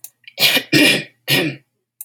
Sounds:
Throat clearing